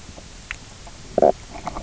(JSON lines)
{"label": "biophony, knock croak", "recorder": "SoundTrap 300"}